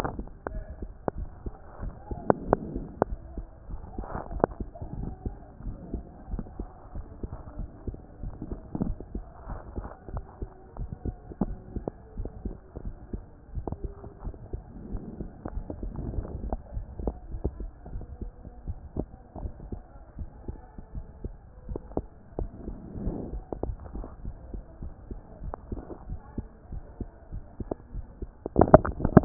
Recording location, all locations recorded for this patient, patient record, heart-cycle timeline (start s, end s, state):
mitral valve (MV)
aortic valve (AV)+pulmonary valve (PV)+tricuspid valve (TV)+mitral valve (MV)
#Age: Child
#Sex: Male
#Height: 127.0 cm
#Weight: 25.5 kg
#Pregnancy status: False
#Murmur: Absent
#Murmur locations: nan
#Most audible location: nan
#Systolic murmur timing: nan
#Systolic murmur shape: nan
#Systolic murmur grading: nan
#Systolic murmur pitch: nan
#Systolic murmur quality: nan
#Diastolic murmur timing: nan
#Diastolic murmur shape: nan
#Diastolic murmur grading: nan
#Diastolic murmur pitch: nan
#Diastolic murmur quality: nan
#Outcome: Abnormal
#Campaign: 2014 screening campaign
0.00	0.12	systole
0.12	0.26	S2
0.26	0.50	diastole
0.50	0.64	S1
0.64	0.80	systole
0.80	0.92	S2
0.92	1.16	diastole
1.16	1.30	S1
1.30	1.46	systole
1.46	1.54	S2
1.54	1.82	diastole
1.82	1.94	S1
1.94	2.08	systole
2.08	2.22	S2
2.22	2.42	diastole
2.42	2.58	S1
2.58	2.72	systole
2.72	2.86	S2
2.86	3.06	diastole
3.06	3.20	S1
3.20	3.34	systole
3.34	3.46	S2
3.46	3.68	diastole
3.68	3.80	S1
3.80	3.96	systole
3.96	4.08	S2
4.08	4.30	diastole
4.30	4.44	S1
4.44	4.58	systole
4.58	4.68	S2
4.68	4.92	diastole
4.92	5.10	S1
5.10	5.24	systole
5.24	5.38	S2
5.38	5.64	diastole
5.64	5.76	S1
5.76	5.92	systole
5.92	6.06	S2
6.06	6.26	diastole
6.26	6.44	S1
6.44	6.58	systole
6.58	6.68	S2
6.68	6.94	diastole
6.94	7.06	S1
7.06	7.22	systole
7.22	7.32	S2
7.32	7.58	diastole
7.58	7.68	S1
7.68	7.86	systole
7.86	8.00	S2
8.00	8.22	diastole
8.22	8.34	S1
8.34	8.50	systole
8.50	8.60	S2
8.60	8.80	diastole
8.80	8.98	S1
8.98	9.14	systole
9.14	9.24	S2
9.24	9.48	diastole
9.48	9.60	S1
9.60	9.76	systole
9.76	9.90	S2
9.90	10.12	diastole
10.12	10.26	S1
10.26	10.40	systole
10.40	10.50	S2
10.50	10.78	diastole
10.78	10.90	S1
10.90	11.06	systole
11.06	11.18	S2
11.18	11.42	diastole
11.42	11.58	S1
11.58	11.74	systole
11.74	11.88	S2
11.88	12.18	diastole
12.18	12.32	S1
12.32	12.44	systole
12.44	12.56	S2
12.56	12.84	diastole
12.84	12.96	S1
12.96	13.12	systole
13.12	13.26	S2
13.26	13.54	diastole
13.54	13.66	S1
13.66	13.82	systole
13.82	13.94	S2
13.94	14.24	diastole
14.24	14.34	S1
14.34	14.52	systole
14.52	14.66	S2
14.66	14.92	diastole
14.92	15.02	S1
15.02	15.18	systole
15.18	15.30	S2
15.30	15.54	diastole
15.54	15.66	S1
15.66	15.82	systole
15.82	15.94	S2
15.94	16.16	diastole
16.16	16.30	S1
16.30	16.42	systole
16.42	16.54	S2
16.54	16.74	diastole
16.74	16.88	S1
16.88	17.04	systole
17.04	17.18	S2
17.18	17.40	diastole
17.40	17.52	S1
17.52	17.60	systole
17.60	17.72	S2
17.72	17.92	diastole
17.92	18.04	S1
18.04	18.20	systole
18.20	18.32	S2
18.32	18.64	diastole
18.64	18.78	S1
18.78	18.96	systole
18.96	19.08	S2
19.08	19.40	diastole
19.40	19.54	S1
19.54	19.70	systole
19.70	19.82	S2
19.82	20.14	diastole
20.14	20.28	S1
20.28	20.48	systole
20.48	20.62	S2
20.62	20.92	diastole
20.92	21.04	S1
21.04	21.24	systole
21.24	21.38	S2
21.38	21.66	diastole
21.66	21.80	S1
21.80	21.96	systole
21.96	22.08	S2
22.08	22.36	diastole
22.36	22.52	S1
22.52	22.68	systole
22.68	22.78	S2
22.78	23.00	diastole
23.00	23.16	S1
23.16	23.32	systole
23.32	23.44	S2
23.44	23.64	diastole
23.64	23.76	S1
23.76	23.94	systole
23.94	24.06	S2
24.06	24.26	diastole
24.26	24.36	S1
24.36	24.48	systole
24.48	24.60	S2
24.60	24.82	diastole
24.82	24.92	S1
24.92	25.10	systole
25.10	25.22	S2
25.22	25.44	diastole
25.44	25.56	S1
25.56	25.72	systole
25.72	25.84	S2
25.84	26.10	diastole
26.10	26.20	S1
26.20	26.34	systole
26.34	26.48	S2
26.48	26.72	diastole
26.72	26.86	S1
26.86	27.00	systole
27.00	27.08	S2
27.08	27.32	diastole
27.32	27.46	S1
27.46	27.60	systole
27.60	27.70	S2
27.70	27.94	diastole
27.94	28.06	S1
28.06	28.18	systole
28.18	28.32	S2
28.32	28.64	diastole
28.64	28.82	S1
28.82	29.12	systole
29.12	29.25	S2